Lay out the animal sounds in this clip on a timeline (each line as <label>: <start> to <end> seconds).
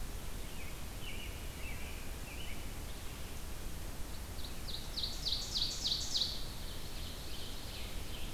American Robin (Turdus migratorius): 0.0 to 3.2 seconds
Ovenbird (Seiurus aurocapilla): 4.0 to 8.3 seconds
Scarlet Tanager (Piranga olivacea): 6.8 to 8.3 seconds